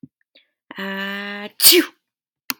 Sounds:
Sneeze